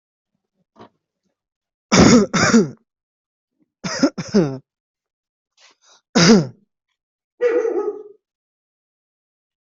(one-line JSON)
{"expert_labels": [{"quality": "good", "cough_type": "dry", "dyspnea": false, "wheezing": false, "stridor": false, "choking": false, "congestion": false, "nothing": true, "diagnosis": "healthy cough", "severity": "pseudocough/healthy cough"}], "age": 20, "gender": "female", "respiratory_condition": true, "fever_muscle_pain": true, "status": "COVID-19"}